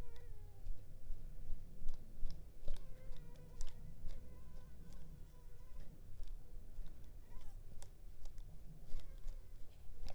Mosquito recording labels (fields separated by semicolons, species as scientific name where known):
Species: Culex pipiens complex; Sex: female; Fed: unfed; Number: one; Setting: cup